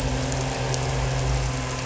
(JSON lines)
{"label": "anthrophony, boat engine", "recorder": "SoundTrap 300"}